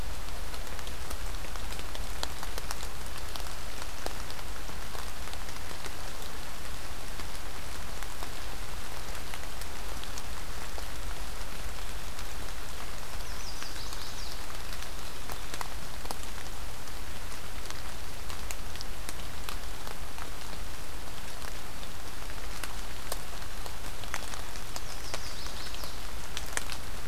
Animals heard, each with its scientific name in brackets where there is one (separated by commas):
Chestnut-sided Warbler (Setophaga pensylvanica)